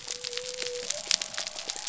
{"label": "biophony", "recorder": "SoundTrap 300"}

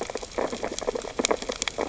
{"label": "biophony, sea urchins (Echinidae)", "recorder": "SoundTrap 600 or HydroMoth"}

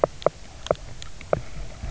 {"label": "biophony, knock", "recorder": "SoundTrap 300"}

